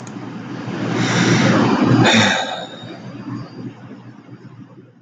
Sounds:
Sigh